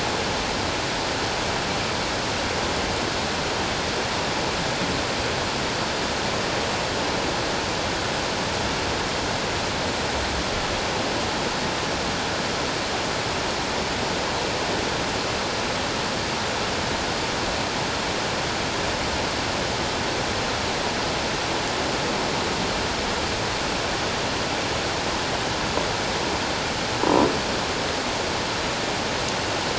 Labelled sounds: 27.0	27.3	croaking sound likely from a nearby submerged object, 0.91 to 1.0 kHz

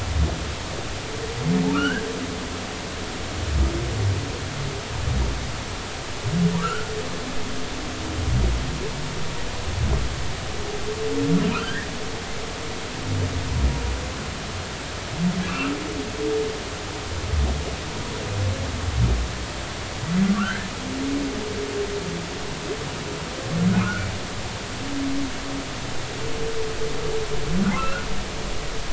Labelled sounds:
1.7	2.1	humpback whale, 1.1 to 1.7 kHz
6.5	6.9	humpback whale, 1.1 to 1.6 kHz
11.5	11.9	humpback whale, 1.2 to 2.0 kHz
15.5	15.8	humpback whale, 1.1 to 2.8 kHz
20.2	20.7	humpback whale, 1.1 to 1.8 kHz
23.8	24.1	humpback whale, 1.2 to 1.6 kHz
27.8	28.1	humpback whale, 1.2 to 1.5 kHz

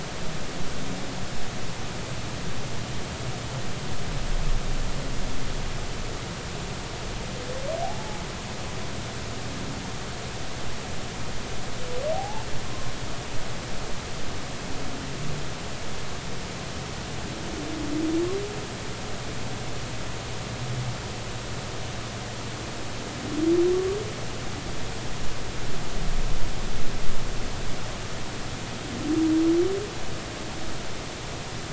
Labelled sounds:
7.8	8.2	humpback whale, 0.80 to 0.90 kHz
12.1	12.5	humpback whale, 0.80 to 0.96 kHz

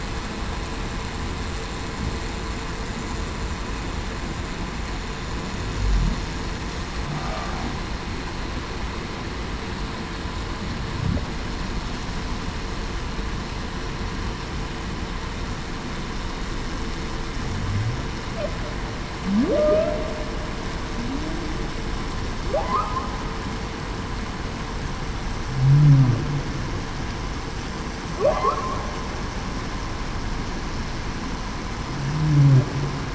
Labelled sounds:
19.2	20.1	humpback whale, 0.19 to 1.4 kHz
21.0	21.4	humpback whale, 0.21 to 0.35 kHz
25.7	26.1	humpback whale, 0.21 to 0.35 kHz

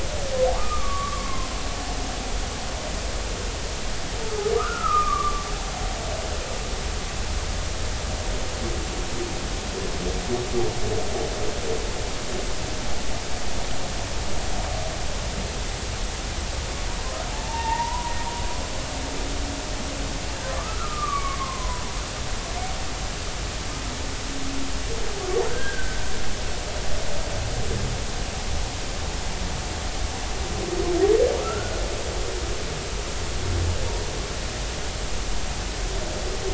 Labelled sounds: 0.6	1.5	humpback whale, 0.99 to 2.5 kHz
4.5	5.4	humpback whale, 1.0 to 1.6 kHz
17.4	18.1	humpback whale, 0.83 to 1.9 kHz
20.5	21.8	humpback whale, 0.93 to 2.4 kHz
25.5	26.0	humpback whale, 1.3 to 1.7 kHz
31.4	31.8	humpback whale, 1.2 to 1.5 kHz

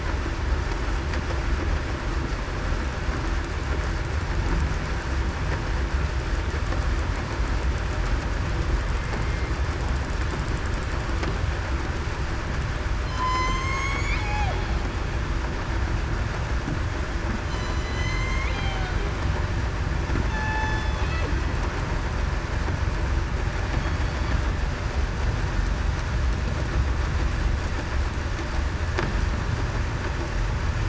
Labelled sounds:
13.0	13.8	killer whale, southern resident, 2.0 to 4.3 kHz
14.2	14.5	killer whale, southern resident, 0.63 to 0.89 kHz
17.4	18.3	killer whale, southern resident, 4.0 to 7.1 kHz
18.5	18.9	killer whale, southern resident, 0.70 to 0.82 kHz
20.3	20.8	killer whale, southern resident, 0.84 to 5.2 kHz

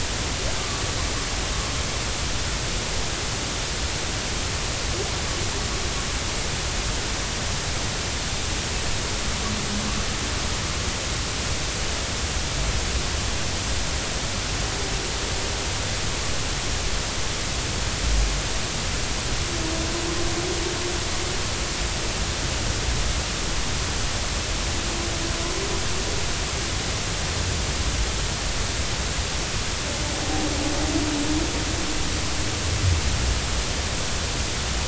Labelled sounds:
0.6	0.8	humpback whale, 1.1 to 1.2 kHz

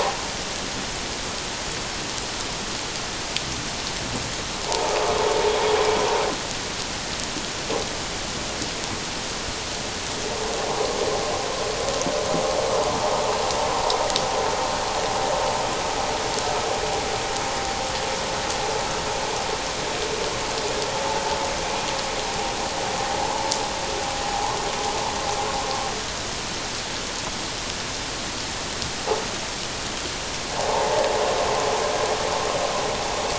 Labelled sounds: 4.7	5.0	vessel noise, 0.78 to 1.0 kHz
30.6	31.1	vessel noise, 0.78 to 1.1 kHz

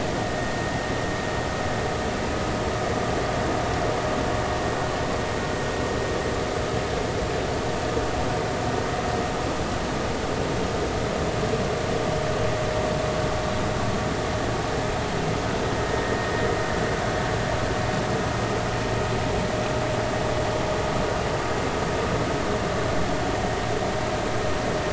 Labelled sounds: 15.9	16.2	vessel noise, 1.8 to 1.9 kHz

